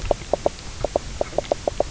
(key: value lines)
label: biophony, knock croak
recorder: SoundTrap 300